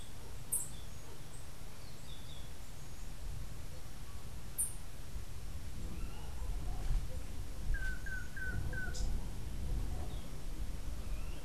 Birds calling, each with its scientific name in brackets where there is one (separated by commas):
unidentified bird, Yellow-throated Euphonia (Euphonia hirundinacea), Long-tailed Manakin (Chiroxiphia linearis)